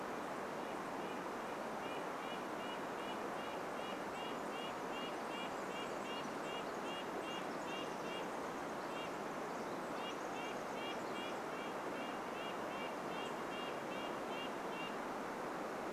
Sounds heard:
Red-breasted Nuthatch song
Pacific Wren song

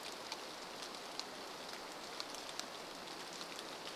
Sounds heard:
rain

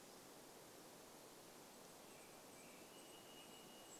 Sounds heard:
Golden-crowned Kinglet song
American Robin song
Varied Thrush song
Golden-crowned Kinglet call

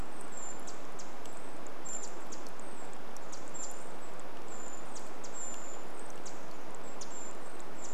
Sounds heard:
Pacific Wren call
Brown Creeper call

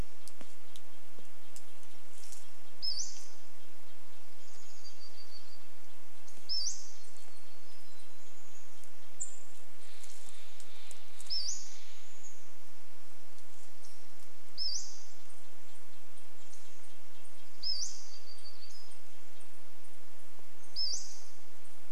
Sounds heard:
Steller's Jay call
unidentified bird chip note
Chestnut-backed Chickadee call
Red-breasted Nuthatch song
warbler song
Pacific-slope Flycatcher call

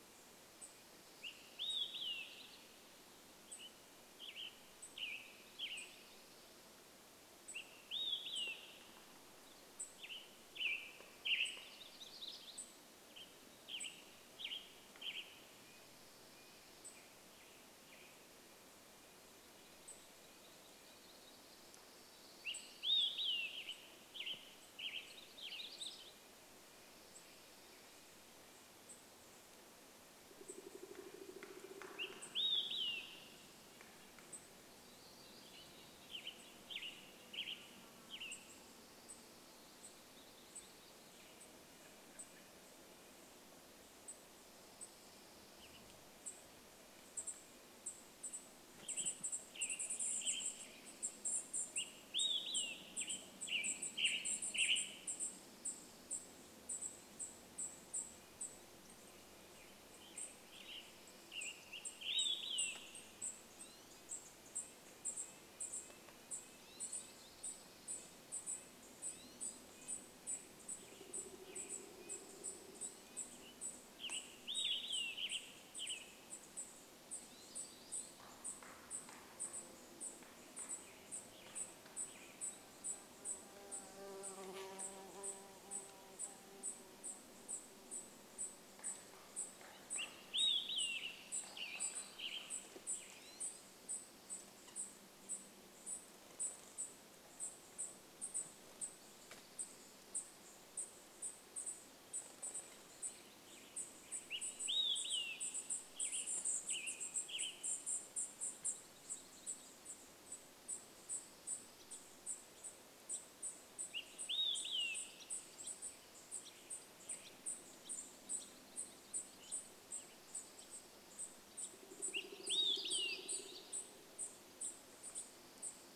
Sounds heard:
unidentified sound
Western Tanager song
woodpecker drumming
insect buzz
unidentified bird chip note
bird wingbeats
warbler song
American Goldfinch call
Olive-sided Flycatcher song
Dark-eyed Junco call
American Robin call
Red-breasted Nuthatch song

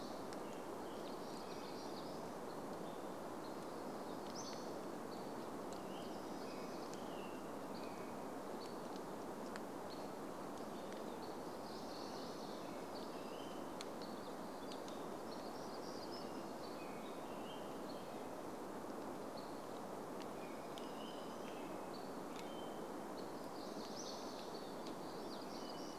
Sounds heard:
warbler song
Hammond's Flycatcher call
Hammond's Flycatcher song
American Robin song

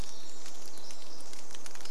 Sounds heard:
Pacific Wren song
rain
Pacific-slope Flycatcher song

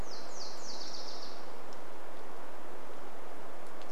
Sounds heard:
Nashville Warbler song
rain

